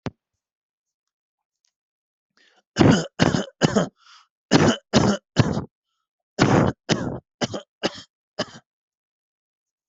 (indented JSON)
{
  "expert_labels": [
    {
      "quality": "good",
      "cough_type": "wet",
      "dyspnea": false,
      "wheezing": false,
      "stridor": false,
      "choking": false,
      "congestion": false,
      "nothing": true,
      "diagnosis": "lower respiratory tract infection",
      "severity": "mild"
    }
  ],
  "age": 30,
  "gender": "male",
  "respiratory_condition": false,
  "fever_muscle_pain": true,
  "status": "COVID-19"
}